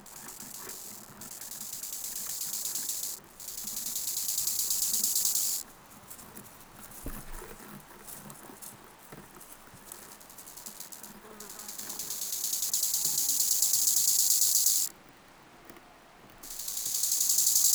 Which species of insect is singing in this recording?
Chorthippus biguttulus